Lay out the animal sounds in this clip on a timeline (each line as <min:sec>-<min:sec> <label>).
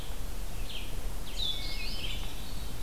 0:00.0-0:02.8 Red-eyed Vireo (Vireo olivaceus)
0:01.4-0:02.8 Hermit Thrush (Catharus guttatus)